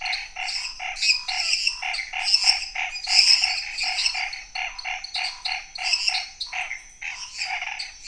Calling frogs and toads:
Chaco tree frog, lesser tree frog, dwarf tree frog, Pithecopus azureus
9:15pm

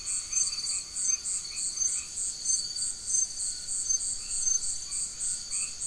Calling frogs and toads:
white-edged tree frog
9:15pm

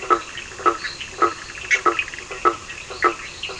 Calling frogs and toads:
blacksmith tree frog, fine-lined tree frog, Cochran's lime tree frog, Bischoff's tree frog
10:15pm

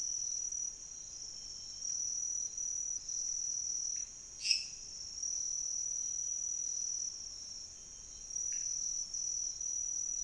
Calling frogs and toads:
lesser tree frog, pointedbelly frog
3:15am

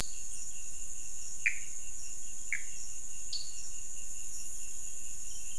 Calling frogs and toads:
Pithecopus azureus, dwarf tree frog
12:30am

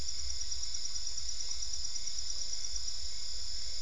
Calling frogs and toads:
none
11:45pm

